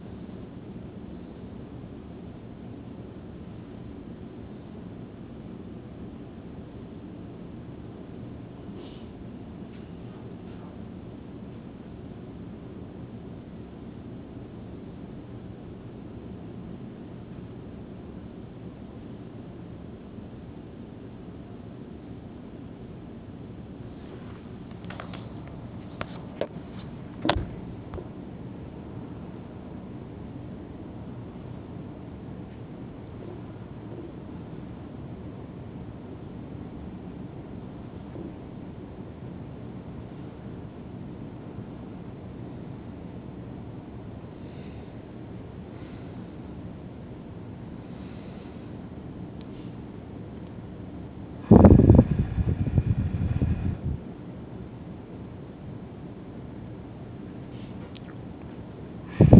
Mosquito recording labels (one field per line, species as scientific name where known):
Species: no mosquito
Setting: insect culture